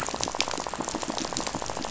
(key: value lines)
label: biophony, rattle
recorder: SoundTrap 500